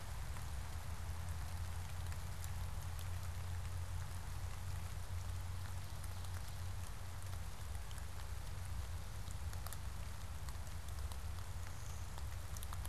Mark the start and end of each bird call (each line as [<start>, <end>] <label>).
[11.46, 12.86] Blue-winged Warbler (Vermivora cyanoptera)